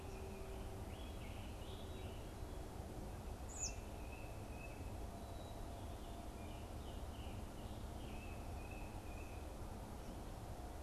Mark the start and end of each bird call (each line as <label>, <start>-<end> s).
Scarlet Tanager (Piranga olivacea), 0.8-2.5 s
Tufted Titmouse (Baeolophus bicolor), 3.4-4.9 s
Scarlet Tanager (Piranga olivacea), 6.4-8.3 s
Tufted Titmouse (Baeolophus bicolor), 8.1-9.6 s